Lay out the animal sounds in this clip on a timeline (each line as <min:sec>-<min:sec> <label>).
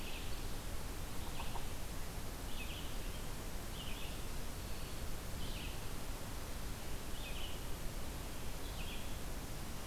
0:00.0-0:00.8 Ovenbird (Seiurus aurocapilla)
0:00.0-0:09.4 Red-eyed Vireo (Vireo olivaceus)
0:00.9-0:01.8 Yellow-bellied Sapsucker (Sphyrapicus varius)
0:04.3-0:05.1 Black-throated Green Warbler (Setophaga virens)